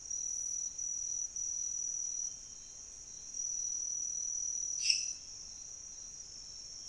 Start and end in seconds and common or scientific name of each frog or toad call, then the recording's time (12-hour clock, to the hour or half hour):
4.8	5.4	lesser tree frog
~3am